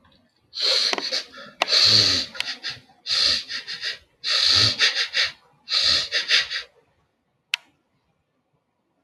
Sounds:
Sniff